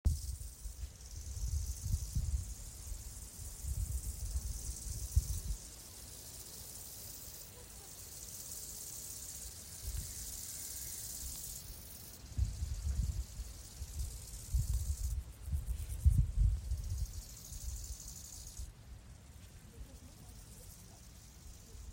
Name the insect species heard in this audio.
Chorthippus biguttulus